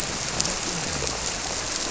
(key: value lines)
label: biophony
recorder: SoundTrap 300